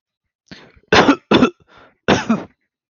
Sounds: Cough